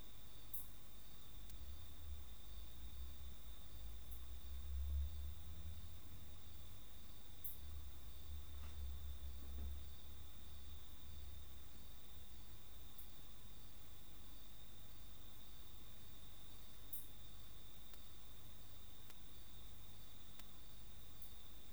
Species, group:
Poecilimon macedonicus
Orthoptera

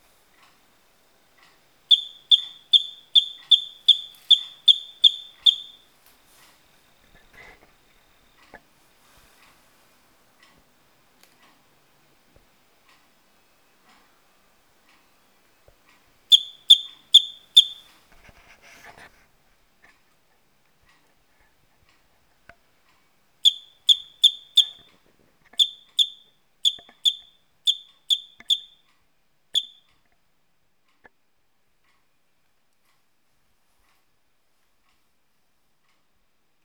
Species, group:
Eugryllodes escalerae
Orthoptera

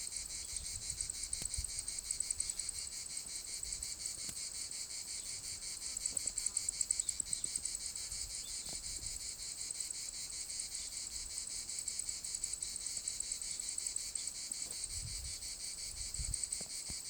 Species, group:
Cicada orni
Cicadidae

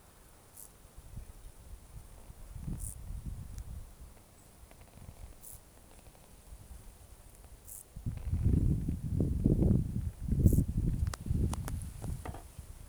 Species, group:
Chorthippus brunneus
Orthoptera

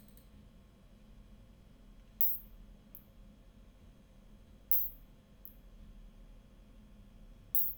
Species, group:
Isophya rhodopensis
Orthoptera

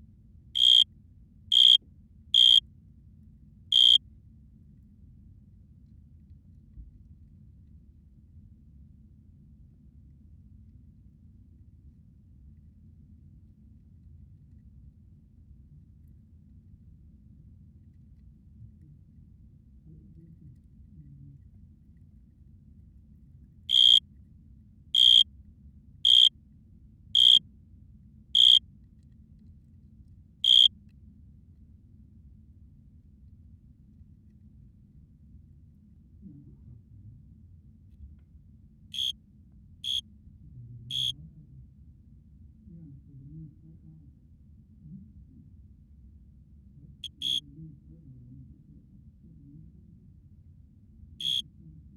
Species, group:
Oecanthus pellucens
Orthoptera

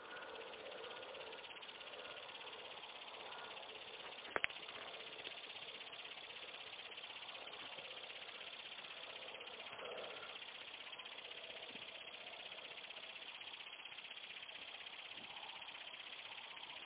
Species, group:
Tettigonia cantans
Orthoptera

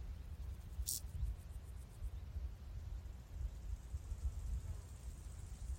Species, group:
Chorthippus brunneus
Orthoptera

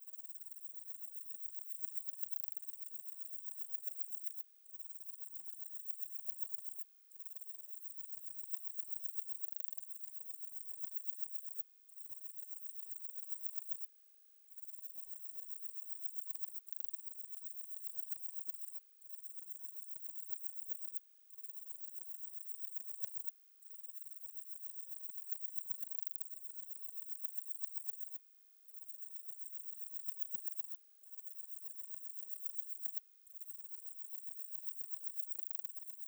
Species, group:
Parnassiana coracis
Orthoptera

